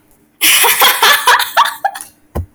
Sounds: Laughter